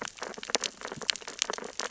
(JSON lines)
{"label": "biophony, sea urchins (Echinidae)", "recorder": "SoundTrap 600 or HydroMoth"}